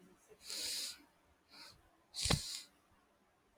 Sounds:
Sniff